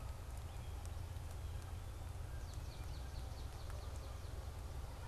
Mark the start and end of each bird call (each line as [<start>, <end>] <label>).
[2.18, 4.68] Swamp Sparrow (Melospiza georgiana)